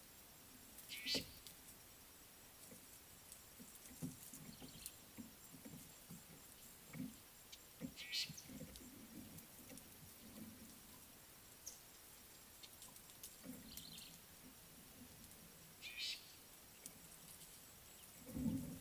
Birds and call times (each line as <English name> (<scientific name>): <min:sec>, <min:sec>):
Fork-tailed Drongo (Dicrurus adsimilis): 0:01.0, 0:08.1, 0:15.9
Brown-tailed Chat (Oenanthe scotocerca): 0:13.8